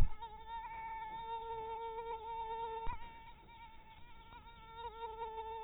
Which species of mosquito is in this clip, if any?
mosquito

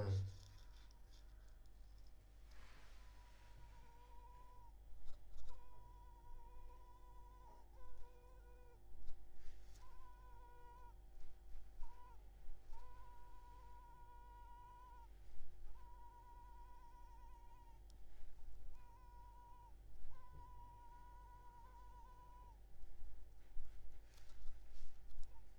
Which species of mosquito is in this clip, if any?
Culex pipiens complex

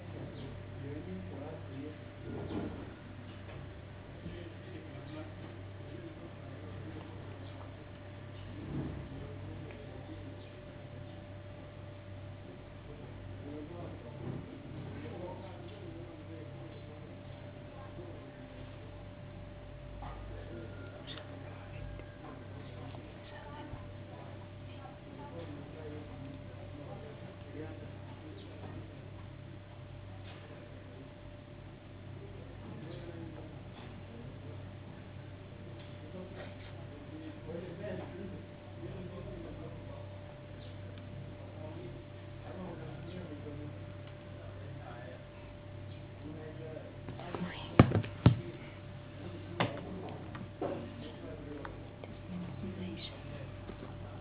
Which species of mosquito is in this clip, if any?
no mosquito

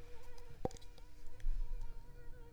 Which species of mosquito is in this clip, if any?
Culex pipiens complex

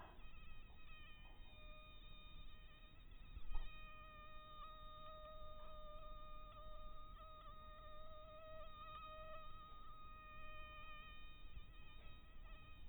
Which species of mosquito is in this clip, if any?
mosquito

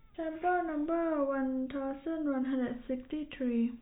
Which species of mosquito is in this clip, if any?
no mosquito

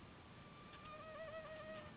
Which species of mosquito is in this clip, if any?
Anopheles gambiae s.s.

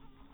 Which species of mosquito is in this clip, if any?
mosquito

